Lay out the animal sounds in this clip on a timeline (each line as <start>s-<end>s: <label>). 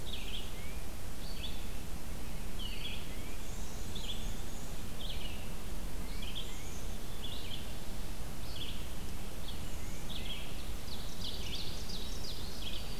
0.0s-3.2s: Red-eyed Vireo (Vireo olivaceus)
0.4s-0.9s: Tufted Titmouse (Baeolophus bicolor)
2.6s-4.0s: Eastern Wood-Pewee (Contopus virens)
2.9s-3.5s: Tufted Titmouse (Baeolophus bicolor)
3.1s-4.8s: Black-and-white Warbler (Mniotilta varia)
3.8s-13.0s: Red-eyed Vireo (Vireo olivaceus)
6.0s-6.8s: Tufted Titmouse (Baeolophus bicolor)
6.4s-7.1s: Black-capped Chickadee (Poecile atricapillus)
9.6s-10.2s: Black-capped Chickadee (Poecile atricapillus)
9.7s-10.4s: Tufted Titmouse (Baeolophus bicolor)
10.7s-12.6s: Ovenbird (Seiurus aurocapilla)
11.8s-13.0s: Winter Wren (Troglodytes hiemalis)